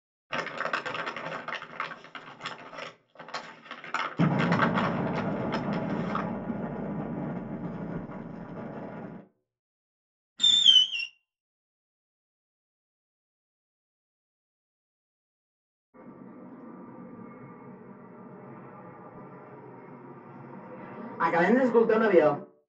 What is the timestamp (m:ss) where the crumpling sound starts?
0:00